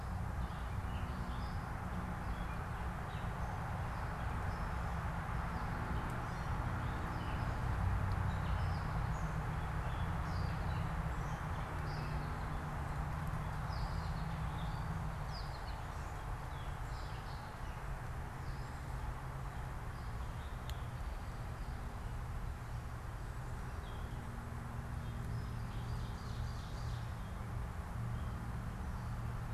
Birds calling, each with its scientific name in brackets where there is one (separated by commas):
Gray Catbird (Dumetella carolinensis), Ovenbird (Seiurus aurocapilla), American Goldfinch (Spinus tristis)